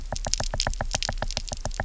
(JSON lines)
{"label": "biophony, knock", "recorder": "SoundTrap 300"}